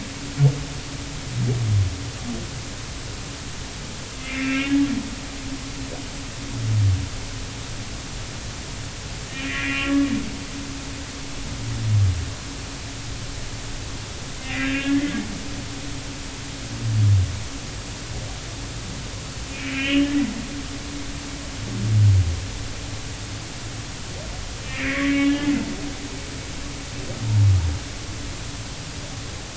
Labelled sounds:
4.2	4.7	humpback whale, 1.3 to 2.8 kHz
5.5	5.8	humpback whale, 1.8 to 2.0 kHz
9.5	10.1	humpback whale, 1.1 to 2.9 kHz
14.6	15.1	humpback whale, 1.6 to 2.8 kHz
19.5	20.1	humpback whale, 2.1 to 3.2 kHz
24.6	25.5	humpback whale, 1.8 to 2.9 kHz

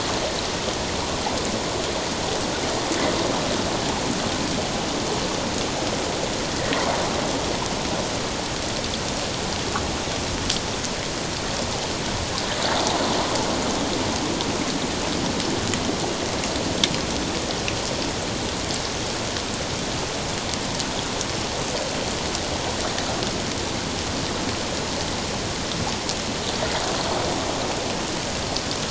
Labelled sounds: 6.6	6.9	water noise, 1.8 to 2.1 kHz

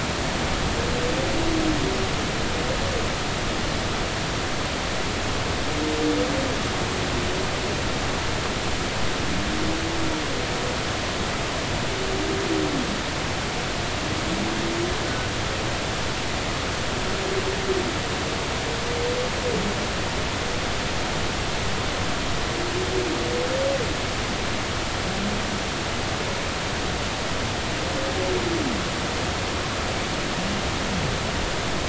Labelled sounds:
15.0	15.3	humpback whale, 1.4 to 1.5 kHz

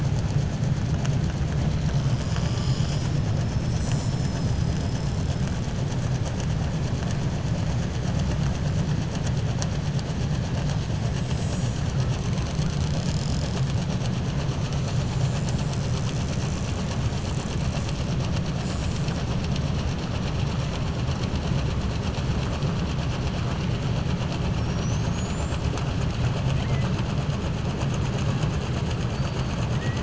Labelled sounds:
29.7	30.0	killer whale, southern resident, 1.5 to 2.3 kHz

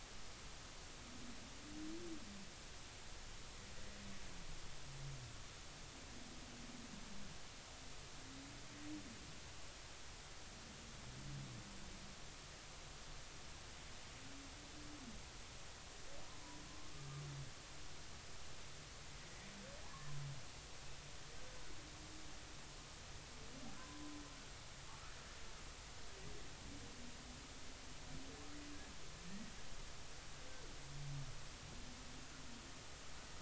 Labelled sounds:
16.9	17.2	humpback whale, 1.15 to 1.25 kHz
19.8	20.1	humpback whale, 0.80 to 1.2 kHz
23.8	24.1	humpback whale, 0.96 to 1.1 kHz
29.3	29.5	humpback whale, 1.8 to 2.0 kHz

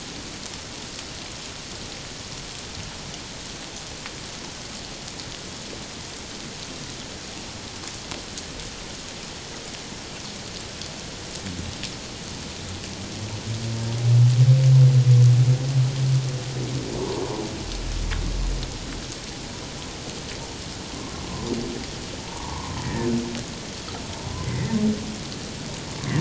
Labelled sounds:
17.0	17.2	humpback whale, 0.84 to 1.1 kHz
22.3	23.1	humpback whale, 0.84 to 2.0 kHz
24.4	24.7	humpback whale, 1.8 to 2.2 kHz

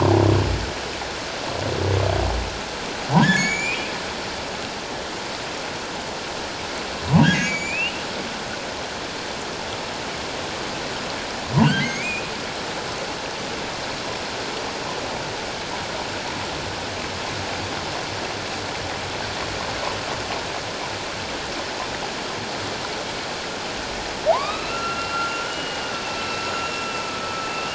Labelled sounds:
3.2	3.9	humpback whale, 1.4 to 7.4 kHz
7.2	8.0	humpback whale, 1.4 to 7.5 kHz
11.7	12.3	humpback whale, 1.4 to 2.6 kHz
24.3	26.9	humpback whale, 0.78 to 4.1 kHz

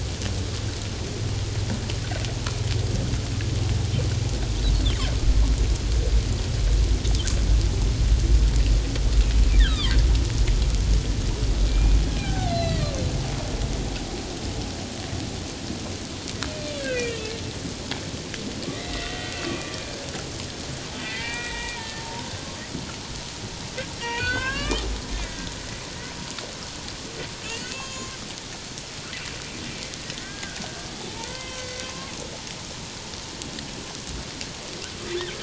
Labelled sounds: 4.8	5.1	humpback whale, 3.0 to 3.7 kHz
9.6	9.9	humpback whale, 0.91 to 2.0 kHz
11.7	12.9	humpback whale, 0.78 to 4.7 kHz
16.8	17.2	humpback whale, 1.8 to 2.7 kHz
18.7	20.1	humpback whale, 1.6 to 2.2 kHz
21.0	22.5	humpback whale, 0.88 to 2.5 kHz
24.0	25.4	humpback whale, 0.97 to 6.8 kHz
27.4	28.2	humpback whale, 0.97 to 6.5 kHz
30.2	30.6	humpback whale, 1.4 to 1.7 kHz
31.1	32.1	humpback whale, 0.81 to 3.2 kHz

